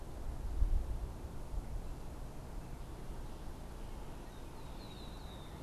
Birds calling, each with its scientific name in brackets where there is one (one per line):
Red-winged Blackbird (Agelaius phoeniceus)